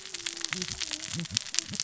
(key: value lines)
label: biophony, cascading saw
recorder: SoundTrap 600 or HydroMoth